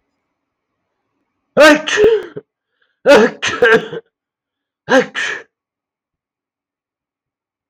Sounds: Sneeze